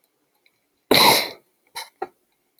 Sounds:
Sneeze